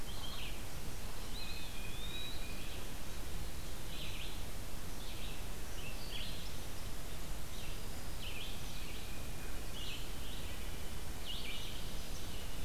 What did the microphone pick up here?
Red-eyed Vireo, Eastern Wood-Pewee